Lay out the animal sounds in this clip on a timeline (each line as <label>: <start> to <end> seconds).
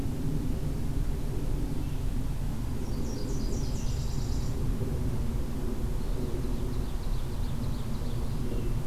Nashville Warbler (Leiothlypis ruficapilla): 2.5 to 4.7 seconds
Ovenbird (Seiurus aurocapilla): 5.8 to 8.7 seconds